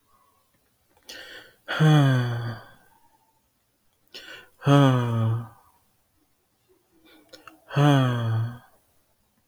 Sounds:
Sigh